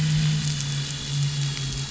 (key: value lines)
label: anthrophony, boat engine
recorder: SoundTrap 500